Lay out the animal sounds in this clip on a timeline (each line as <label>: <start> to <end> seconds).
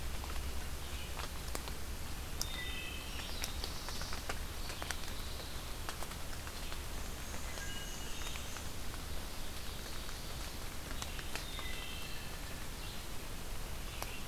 Red-eyed Vireo (Vireo olivaceus): 0.0 to 14.3 seconds
Wood Thrush (Hylocichla mustelina): 2.5 to 3.2 seconds
Black-throated Blue Warbler (Setophaga caerulescens): 3.1 to 4.4 seconds
Black-and-white Warbler (Mniotilta varia): 6.9 to 8.7 seconds
Wood Thrush (Hylocichla mustelina): 7.4 to 8.4 seconds
Ovenbird (Seiurus aurocapilla): 9.0 to 10.8 seconds
Wood Thrush (Hylocichla mustelina): 11.4 to 12.3 seconds